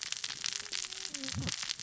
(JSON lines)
{"label": "biophony, cascading saw", "recorder": "SoundTrap 600 or HydroMoth"}